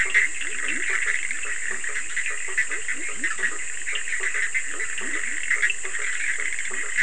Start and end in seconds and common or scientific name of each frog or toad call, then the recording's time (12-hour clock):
0.0	0.8	Cochran's lime tree frog
0.0	7.0	Bischoff's tree frog
0.0	7.0	blacksmith tree frog
0.0	7.0	Leptodactylus latrans
3.9	4.1	Cochran's lime tree frog
5.3	5.9	Cochran's lime tree frog
12:00am